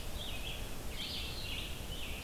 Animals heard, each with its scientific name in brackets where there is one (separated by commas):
Scarlet Tanager (Piranga olivacea), Red-eyed Vireo (Vireo olivaceus)